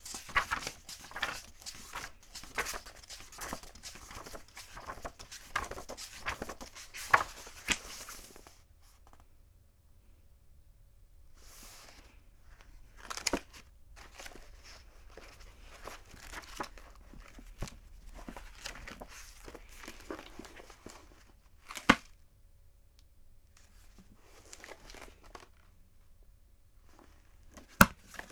What is being flipped?
book